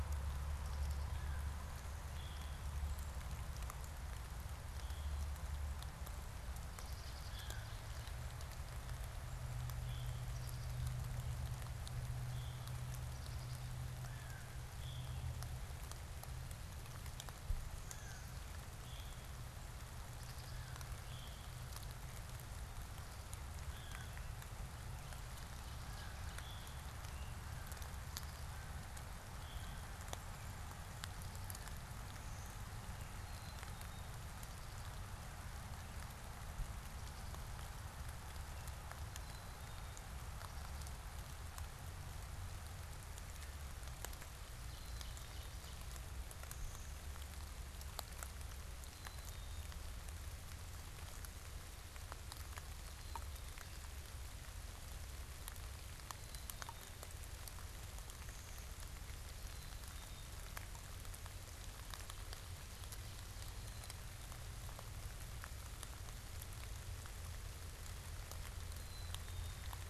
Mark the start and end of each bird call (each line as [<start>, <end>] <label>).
[4.60, 15.50] Veery (Catharus fuscescens)
[6.60, 7.70] Black-capped Chickadee (Poecile atricapillus)
[7.20, 7.70] American Crow (Corvus brachyrhynchos)
[10.20, 11.00] Black-capped Chickadee (Poecile atricapillus)
[12.80, 13.80] Black-capped Chickadee (Poecile atricapillus)
[13.90, 14.70] American Crow (Corvus brachyrhynchos)
[17.60, 19.00] Blue-winged Warbler (Vermivora cyanoptera)
[17.80, 26.60] American Crow (Corvus brachyrhynchos)
[18.70, 29.90] Veery (Catharus fuscescens)
[31.80, 33.20] Blue-winged Warbler (Vermivora cyanoptera)
[33.10, 34.10] Black-capped Chickadee (Poecile atricapillus)
[39.00, 40.10] Black-capped Chickadee (Poecile atricapillus)
[44.50, 45.70] Black-capped Chickadee (Poecile atricapillus)
[48.80, 49.90] Black-capped Chickadee (Poecile atricapillus)
[52.70, 54.00] Black-capped Chickadee (Poecile atricapillus)
[55.90, 57.30] Black-capped Chickadee (Poecile atricapillus)
[58.10, 59.60] Blue-winged Warbler (Vermivora cyanoptera)
[59.20, 60.40] Black-capped Chickadee (Poecile atricapillus)
[62.70, 64.20] Black-capped Chickadee (Poecile atricapillus)
[68.50, 69.80] Black-capped Chickadee (Poecile atricapillus)